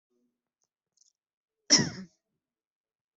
{"expert_labels": [{"quality": "ok", "cough_type": "dry", "dyspnea": false, "wheezing": false, "stridor": false, "choking": false, "congestion": false, "nothing": true, "diagnosis": "lower respiratory tract infection", "severity": "mild"}], "age": 36, "gender": "female", "respiratory_condition": false, "fever_muscle_pain": false, "status": "healthy"}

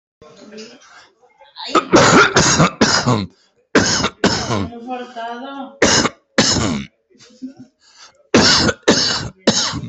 {"expert_labels": [{"quality": "ok", "cough_type": "dry", "dyspnea": false, "wheezing": false, "stridor": false, "choking": false, "congestion": false, "nothing": true, "diagnosis": "COVID-19", "severity": "mild"}], "age": 50, "gender": "male", "respiratory_condition": false, "fever_muscle_pain": false, "status": "symptomatic"}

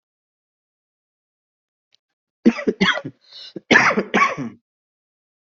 {"expert_labels": [{"quality": "good", "cough_type": "dry", "dyspnea": false, "wheezing": false, "stridor": false, "choking": false, "congestion": false, "nothing": true, "diagnosis": "healthy cough", "severity": "pseudocough/healthy cough"}], "age": 32, "gender": "male", "respiratory_condition": false, "fever_muscle_pain": false, "status": "COVID-19"}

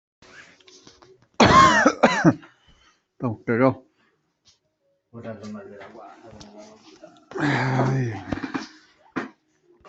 {"expert_labels": [{"quality": "ok", "cough_type": "dry", "dyspnea": false, "wheezing": false, "stridor": false, "choking": false, "congestion": false, "nothing": true, "diagnosis": "healthy cough", "severity": "pseudocough/healthy cough"}]}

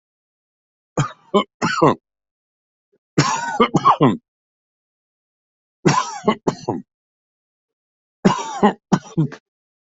{"expert_labels": [{"quality": "good", "cough_type": "unknown", "dyspnea": false, "wheezing": false, "stridor": false, "choking": false, "congestion": false, "nothing": true, "diagnosis": "upper respiratory tract infection", "severity": "severe"}], "age": 68, "gender": "female", "respiratory_condition": false, "fever_muscle_pain": true, "status": "healthy"}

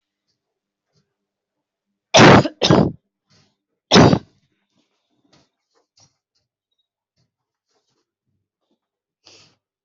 {"expert_labels": [{"quality": "poor", "cough_type": "unknown", "dyspnea": false, "wheezing": false, "stridor": false, "choking": false, "congestion": true, "nothing": false, "diagnosis": "upper respiratory tract infection", "severity": "mild"}, {"quality": "ok", "cough_type": "dry", "dyspnea": false, "wheezing": false, "stridor": false, "choking": false, "congestion": true, "nothing": false, "diagnosis": "upper respiratory tract infection", "severity": "mild"}, {"quality": "ok", "cough_type": "unknown", "dyspnea": false, "wheezing": false, "stridor": false, "choking": false, "congestion": false, "nothing": true, "diagnosis": "upper respiratory tract infection", "severity": "unknown"}, {"quality": "good", "cough_type": "dry", "dyspnea": false, "wheezing": false, "stridor": false, "choking": false, "congestion": true, "nothing": false, "diagnosis": "upper respiratory tract infection", "severity": "mild"}], "age": 42, "gender": "female", "respiratory_condition": false, "fever_muscle_pain": false, "status": "healthy"}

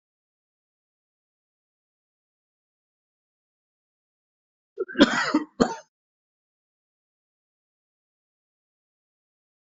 {"expert_labels": [{"quality": "good", "cough_type": "wet", "dyspnea": false, "wheezing": false, "stridor": false, "choking": false, "congestion": false, "nothing": true, "diagnosis": "upper respiratory tract infection", "severity": "mild"}], "age": 63, "gender": "male", "respiratory_condition": false, "fever_muscle_pain": false, "status": "symptomatic"}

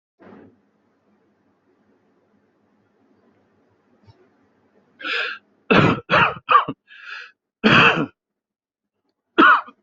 {"expert_labels": [{"quality": "good", "cough_type": "dry", "dyspnea": false, "wheezing": false, "stridor": false, "choking": false, "congestion": false, "nothing": true, "diagnosis": "upper respiratory tract infection", "severity": "mild"}], "age": 41, "gender": "male", "respiratory_condition": false, "fever_muscle_pain": false, "status": "healthy"}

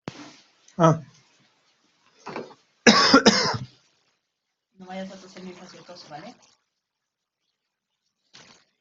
{"expert_labels": [{"quality": "ok", "cough_type": "dry", "dyspnea": false, "wheezing": false, "stridor": false, "choking": false, "congestion": false, "nothing": true, "diagnosis": "upper respiratory tract infection", "severity": "unknown"}], "age": 38, "gender": "male", "respiratory_condition": false, "fever_muscle_pain": false, "status": "symptomatic"}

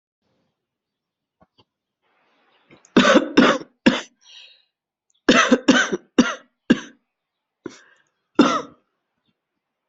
{"expert_labels": [{"quality": "good", "cough_type": "dry", "dyspnea": false, "wheezing": false, "stridor": false, "choking": false, "congestion": false, "nothing": true, "diagnosis": "upper respiratory tract infection", "severity": "mild"}]}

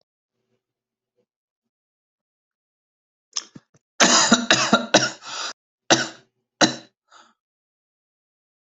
{"expert_labels": [{"quality": "good", "cough_type": "dry", "dyspnea": false, "wheezing": false, "stridor": false, "choking": false, "congestion": false, "nothing": true, "diagnosis": "upper respiratory tract infection", "severity": "mild"}], "age": 24, "gender": "male", "respiratory_condition": false, "fever_muscle_pain": true, "status": "symptomatic"}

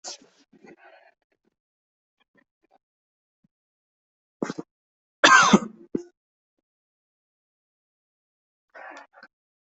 {"expert_labels": [{"quality": "good", "cough_type": "dry", "dyspnea": false, "wheezing": false, "stridor": false, "choking": false, "congestion": false, "nothing": true, "diagnosis": "healthy cough", "severity": "pseudocough/healthy cough"}], "age": 20, "gender": "female", "respiratory_condition": true, "fever_muscle_pain": false, "status": "COVID-19"}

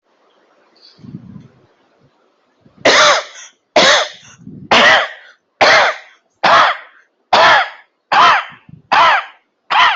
{"expert_labels": [{"quality": "good", "cough_type": "dry", "dyspnea": false, "wheezing": false, "stridor": false, "choking": false, "congestion": false, "nothing": true, "diagnosis": "upper respiratory tract infection", "severity": "severe"}], "age": 48, "gender": "male", "respiratory_condition": false, "fever_muscle_pain": false, "status": "healthy"}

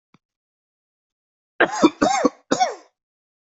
{"expert_labels": [{"quality": "good", "cough_type": "dry", "dyspnea": false, "wheezing": false, "stridor": false, "choking": false, "congestion": false, "nothing": true, "diagnosis": "healthy cough", "severity": "pseudocough/healthy cough"}], "age": 41, "gender": "male", "respiratory_condition": false, "fever_muscle_pain": false, "status": "symptomatic"}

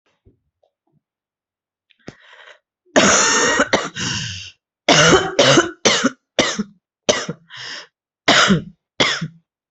{"expert_labels": [{"quality": "good", "cough_type": "wet", "dyspnea": false, "wheezing": false, "stridor": false, "choking": false, "congestion": false, "nothing": true, "diagnosis": "lower respiratory tract infection", "severity": "severe"}], "age": 39, "gender": "female", "respiratory_condition": false, "fever_muscle_pain": false, "status": "symptomatic"}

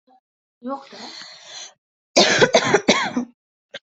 {"expert_labels": [{"quality": "good", "cough_type": "dry", "dyspnea": false, "wheezing": false, "stridor": false, "choking": false, "congestion": false, "nothing": true, "diagnosis": "healthy cough", "severity": "pseudocough/healthy cough"}], "age": 19, "gender": "other", "respiratory_condition": true, "fever_muscle_pain": false, "status": "COVID-19"}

